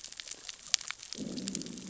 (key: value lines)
label: biophony, growl
recorder: SoundTrap 600 or HydroMoth